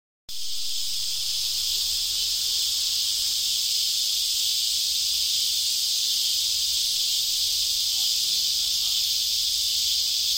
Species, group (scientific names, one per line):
Psaltoda plaga
Cicadidae